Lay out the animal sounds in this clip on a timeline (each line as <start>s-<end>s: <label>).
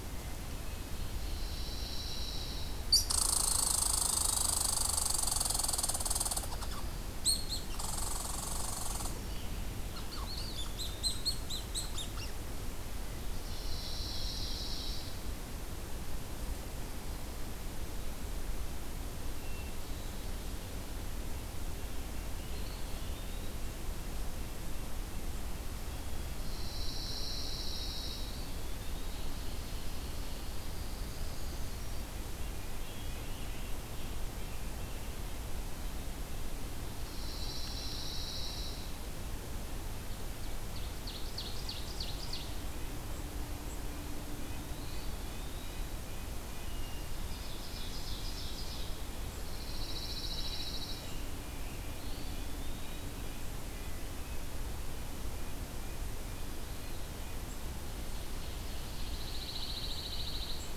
0.1s-1.2s: Wood Thrush (Hylocichla mustelina)
0.9s-2.9s: Pine Warbler (Setophaga pinus)
2.9s-12.3s: Red Squirrel (Tamiasciurus hudsonicus)
12.9s-15.0s: Ovenbird (Seiurus aurocapilla)
13.1s-15.6s: Pine Warbler (Setophaga pinus)
19.2s-20.0s: Wood Thrush (Hylocichla mustelina)
22.3s-23.6s: Eastern Wood-Pewee (Contopus virens)
23.5s-26.1s: Red-breasted Nuthatch (Sitta canadensis)
26.3s-28.7s: Pine Warbler (Setophaga pinus)
28.1s-29.6s: Eastern Wood-Pewee (Contopus virens)
29.4s-31.8s: Ovenbird (Seiurus aurocapilla)
30.9s-32.2s: Brown Creeper (Certhia americana)
32.3s-35.4s: Red-breasted Nuthatch (Sitta canadensis)
36.9s-39.0s: Pine Warbler (Setophaga pinus)
40.3s-42.8s: Ovenbird (Seiurus aurocapilla)
43.8s-45.2s: Eastern Wood-Pewee (Contopus virens)
44.4s-57.7s: Red-breasted Nuthatch (Sitta canadensis)
46.5s-47.3s: Wood Thrush (Hylocichla mustelina)
46.9s-49.1s: Ovenbird (Seiurus aurocapilla)
48.9s-51.5s: Pine Warbler (Setophaga pinus)
51.9s-53.3s: Eastern Wood-Pewee (Contopus virens)
56.4s-57.7s: Eastern Wood-Pewee (Contopus virens)
57.9s-59.8s: Ovenbird (Seiurus aurocapilla)
59.1s-60.6s: Pine Warbler (Setophaga pinus)